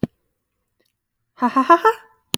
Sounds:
Laughter